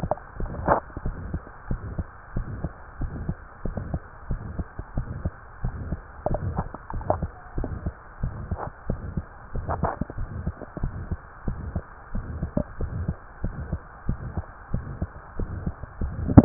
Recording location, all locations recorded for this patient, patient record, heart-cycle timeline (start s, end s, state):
mitral valve (MV)
aortic valve (AV)+pulmonary valve (PV)+tricuspid valve (TV)+mitral valve (MV)
#Age: Child
#Sex: Male
#Height: 130.0 cm
#Weight: 23.2 kg
#Pregnancy status: False
#Murmur: Present
#Murmur locations: aortic valve (AV)+mitral valve (MV)+pulmonary valve (PV)+tricuspid valve (TV)
#Most audible location: aortic valve (AV)
#Systolic murmur timing: Mid-systolic
#Systolic murmur shape: Diamond
#Systolic murmur grading: III/VI or higher
#Systolic murmur pitch: Medium
#Systolic murmur quality: Harsh
#Diastolic murmur timing: nan
#Diastolic murmur shape: nan
#Diastolic murmur grading: nan
#Diastolic murmur pitch: nan
#Diastolic murmur quality: nan
#Outcome: Abnormal
#Campaign: 2015 screening campaign
0.00	1.01	unannotated
1.01	1.16	S1
1.16	1.30	systole
1.30	1.40	S2
1.40	1.65	diastole
1.65	1.79	S1
1.79	1.95	systole
1.95	2.06	S2
2.06	2.32	diastole
2.32	2.45	S1
2.45	2.61	systole
2.61	2.71	S2
2.71	3.00	diastole
3.00	3.14	S1
3.14	3.20	systole
3.20	3.34	S2
3.34	3.64	diastole
3.64	3.76	S1
3.76	3.88	systole
3.88	4.00	S2
4.00	4.30	diastole
4.30	4.42	S1
4.42	4.54	systole
4.54	4.64	S2
4.64	4.96	diastole
4.96	5.10	S1
5.10	5.20	systole
5.20	5.32	S2
5.32	5.64	diastole
5.64	5.74	S1
5.74	5.84	systole
5.84	5.98	S2
5.98	6.29	diastole
6.29	6.39	S1
6.39	6.52	systole
6.52	6.63	S2
6.63	6.92	diastole
6.92	7.04	S1
7.04	7.17	systole
7.17	7.30	S2
7.30	7.56	diastole
7.56	7.68	S1
7.68	7.84	systole
7.84	7.94	S2
7.94	8.19	diastole
8.19	8.33	S1
8.33	8.48	systole
8.48	8.58	S2
8.58	8.87	diastole
8.87	8.99	S1
8.99	9.14	systole
9.14	9.24	S2
9.24	9.51	diastole
9.51	9.65	S1
9.65	16.45	unannotated